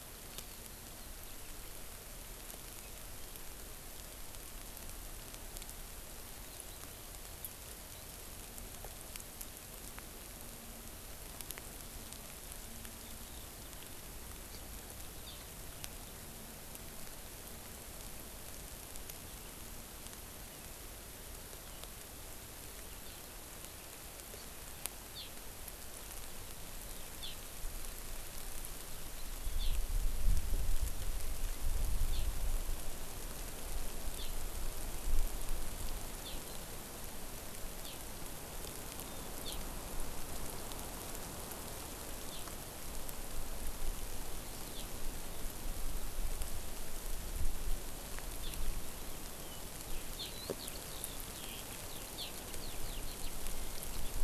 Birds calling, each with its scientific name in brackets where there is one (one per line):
Eurasian Skylark (Alauda arvensis)